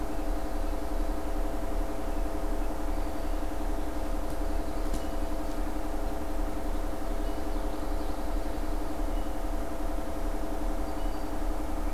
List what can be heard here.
Common Yellowthroat, Black-throated Green Warbler